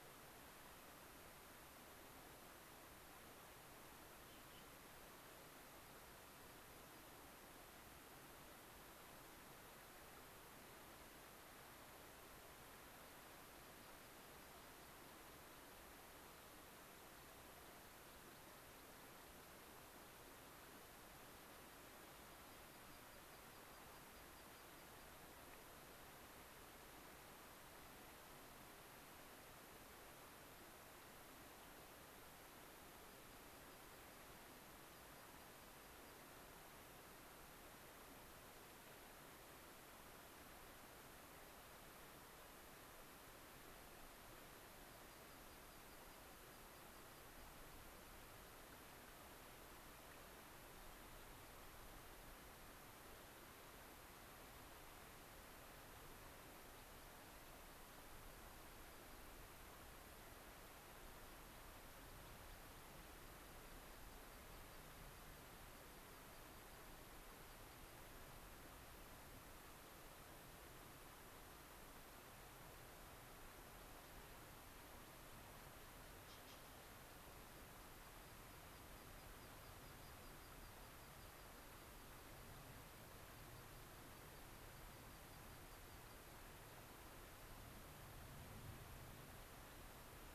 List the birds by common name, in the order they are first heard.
American Pipit